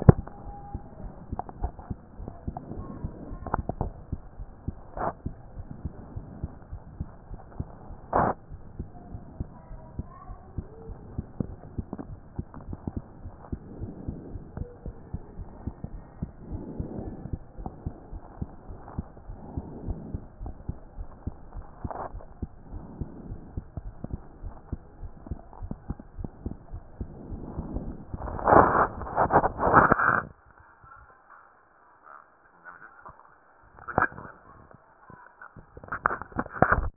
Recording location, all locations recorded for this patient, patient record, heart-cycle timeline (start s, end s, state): aortic valve (AV)
aortic valve (AV)+pulmonary valve (PV)+tricuspid valve (TV)+mitral valve (MV)
#Age: Child
#Sex: Female
#Height: 132.0 cm
#Weight: 33.4 kg
#Pregnancy status: False
#Murmur: Absent
#Murmur locations: nan
#Most audible location: nan
#Systolic murmur timing: nan
#Systolic murmur shape: nan
#Systolic murmur grading: nan
#Systolic murmur pitch: nan
#Systolic murmur quality: nan
#Diastolic murmur timing: nan
#Diastolic murmur shape: nan
#Diastolic murmur grading: nan
#Diastolic murmur pitch: nan
#Diastolic murmur quality: nan
#Outcome: Abnormal
#Campaign: 2014 screening campaign
0.12	0.26	S2
0.26	0.44	diastole
0.44	0.56	S1
0.56	0.72	systole
0.72	0.82	S2
0.82	1.00	diastole
1.00	1.12	S1
1.12	1.30	systole
1.30	1.40	S2
1.40	1.58	diastole
1.58	1.76	S1
1.76	1.88	systole
1.88	1.98	S2
1.98	2.18	diastole
2.18	2.32	S1
2.32	2.42	systole
2.42	2.58	S2
2.58	2.76	diastole
2.76	2.88	S1
2.88	3.00	systole
3.00	3.12	S2
3.12	3.28	diastole
3.28	3.40	S1
3.40	3.52	systole
3.52	3.64	S2
3.64	3.78	diastole
3.78	3.94	S1
3.94	4.08	systole
4.08	4.22	S2
4.22	4.38	diastole
4.38	4.50	S1
4.50	4.64	systole
4.64	4.76	S2
4.76	4.96	diastole
4.96	5.12	S1
5.12	5.24	systole
5.24	5.38	S2
5.38	5.56	diastole
5.56	5.68	S1
5.68	5.82	systole
5.82	5.94	S2
5.94	6.14	diastole
6.14	6.28	S1
6.28	6.40	systole
6.40	6.52	S2
6.52	6.70	diastole
6.70	6.80	S1
6.80	6.94	systole
6.94	7.08	S2
7.08	7.30	diastole
7.30	7.40	S1
7.40	7.54	systole
7.54	7.68	S2
7.68	7.88	diastole
7.88	7.98	S1
7.98	8.16	systole
8.16	8.32	S2
8.32	8.50	diastole
8.50	8.62	S1
8.62	8.78	systole
8.78	8.90	S2
8.90	9.08	diastole
9.08	9.22	S1
9.22	9.38	systole
9.38	9.52	S2
9.52	9.70	diastole
9.70	9.82	S1
9.82	9.96	systole
9.96	10.10	S2
10.10	10.28	diastole
10.28	10.38	S1
10.38	10.56	systole
10.56	10.68	S2
10.68	10.86	diastole
10.86	10.98	S1
10.98	11.16	systole
11.16	11.26	S2
11.26	11.48	diastole
11.48	11.60	S1
11.60	11.74	systole
11.74	11.86	S2
11.86	12.06	diastole
12.06	12.20	S1
12.20	12.36	systole
12.36	12.48	S2
12.48	12.66	diastole
12.66	12.80	S1
12.80	12.94	systole
12.94	13.06	S2
13.06	13.22	diastole
13.22	13.34	S1
13.34	13.48	systole
13.48	13.60	S2
13.60	13.78	diastole
13.78	13.94	S1
13.94	14.06	systole
14.06	14.18	S2
14.18	14.34	diastole
14.34	14.46	S1
14.46	14.56	systole
14.56	14.68	S2
14.68	14.84	diastole
14.84	14.96	S1
14.96	15.12	systole
15.12	15.22	S2
15.22	15.38	diastole
15.38	15.48	S1
15.48	15.62	systole
15.62	15.74	S2
15.74	15.92	diastole
15.92	16.02	S1
16.02	16.18	systole
16.18	16.30	S2
16.30	16.48	diastole
16.48	16.62	S1
16.62	16.76	systole
16.76	16.88	S2
16.88	17.04	diastole
17.04	17.18	S1
17.18	17.30	systole
17.30	17.42	S2
17.42	17.58	diastole
17.58	17.74	S1
17.74	17.84	systole
17.84	17.94	S2
17.94	18.10	diastole
18.10	18.24	S1
18.24	18.40	systole
18.40	18.50	S2
18.50	18.68	diastole
18.68	18.80	S1
18.80	18.96	systole
18.96	19.08	S2
19.08	19.28	diastole
19.28	19.40	S1
19.40	19.54	systole
19.54	19.66	S2
19.66	19.84	diastole
19.84	20.02	S1
20.02	20.12	systole
20.12	20.26	S2
20.26	20.42	diastole
20.42	20.54	S1
20.54	20.66	systole
20.66	20.76	S2
20.76	20.96	diastole
20.96	21.08	S1
21.08	21.22	systole
21.22	21.34	S2
21.34	21.54	diastole
21.54	21.66	S1
21.66	21.80	systole
21.80	21.92	S2
21.92	22.12	diastole
22.12	22.22	S1
22.22	22.38	systole
22.38	22.50	S2
22.50	22.70	diastole
22.70	22.84	S1
22.84	22.98	systole
22.98	23.08	S2
23.08	23.26	diastole
23.26	23.40	S1
23.40	23.54	systole
23.54	23.66	S2
23.66	23.84	diastole
23.84	23.94	S1
23.94	24.12	systole
24.12	24.24	S2
24.24	24.42	diastole
24.42	24.54	S1
24.54	24.68	systole
24.68	24.80	S2
24.80	25.00	diastole
25.00	25.12	S1
25.12	25.30	systole
25.30	25.42	S2
25.42	25.60	diastole
25.60	25.72	S1
25.72	25.88	systole
25.88	26.00	S2
26.00	26.18	diastole
26.18	26.30	S1
26.30	26.42	systole
26.42	26.56	S2
26.56	26.72	diastole
26.72	26.82	S1
26.82	26.98	systole
26.98	27.08	S2
27.08	27.26	diastole
27.26	27.40	S1
27.40	27.56	systole
27.56	27.70	S2
27.70	27.86	diastole
27.86	28.00	S1
28.00	28.22	systole
28.22	28.33	S2